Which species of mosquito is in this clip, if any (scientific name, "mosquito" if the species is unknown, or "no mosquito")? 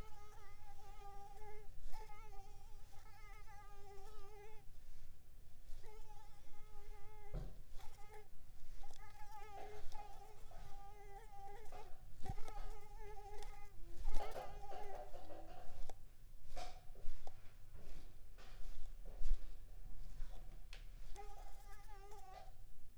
Mansonia uniformis